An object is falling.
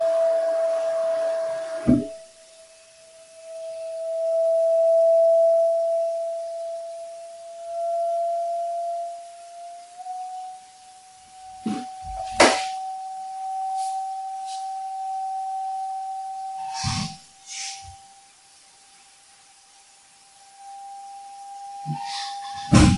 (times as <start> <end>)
12.3 12.6